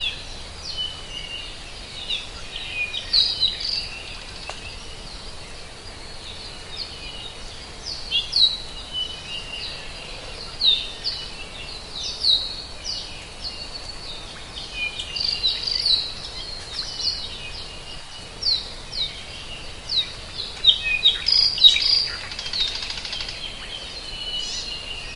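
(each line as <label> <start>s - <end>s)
Multiple birds chirp loudly in the forest during the daytime. 0.0s - 25.2s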